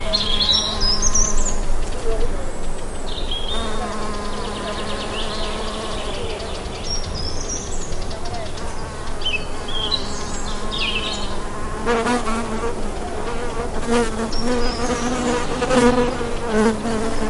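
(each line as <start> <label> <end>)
0.0 A bird repeats distant calls. 17.3
0.2 A mosquito is buzzing repeatedly outdoors. 9.5
9.6 A mosquito buzzes repeatedly. 17.3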